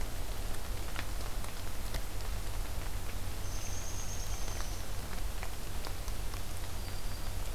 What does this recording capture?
Downy Woodpecker, Black-throated Green Warbler